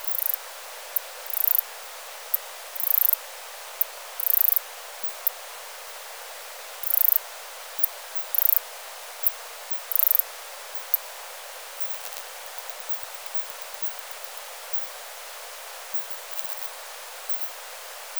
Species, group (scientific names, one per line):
Ancistrura nigrovittata
Orthoptera